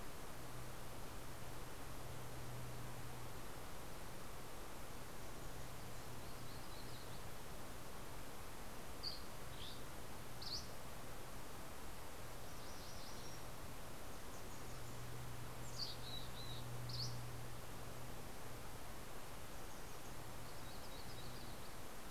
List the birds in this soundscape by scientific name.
Setophaga coronata, Empidonax oberholseri, Geothlypis tolmiei, Poecile gambeli